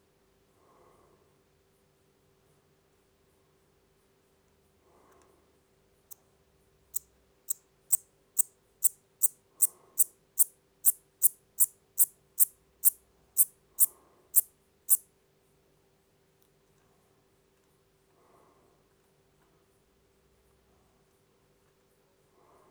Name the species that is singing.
Eupholidoptera smyrnensis